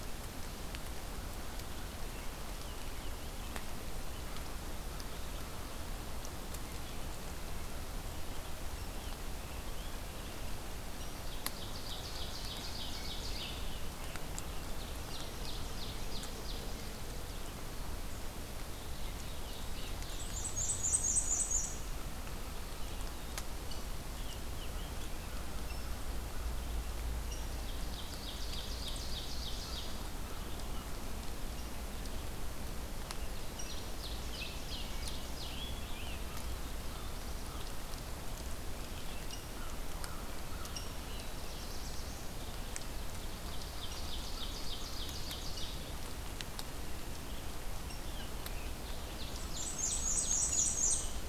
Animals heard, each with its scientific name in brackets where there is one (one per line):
Rose-breasted Grosbeak (Pheucticus ludovicianus)
American Crow (Corvus brachyrhynchos)
Ovenbird (Seiurus aurocapilla)
Black-and-white Warbler (Mniotilta varia)
Black-throated Blue Warbler (Setophaga caerulescens)